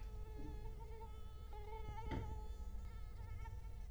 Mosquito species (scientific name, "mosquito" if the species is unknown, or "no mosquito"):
Culex quinquefasciatus